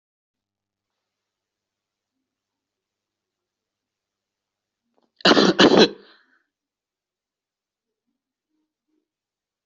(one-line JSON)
{"expert_labels": [{"quality": "good", "cough_type": "unknown", "dyspnea": false, "wheezing": false, "stridor": false, "choking": false, "congestion": false, "nothing": true, "diagnosis": "healthy cough", "severity": "pseudocough/healthy cough"}], "gender": "female", "respiratory_condition": false, "fever_muscle_pain": false, "status": "healthy"}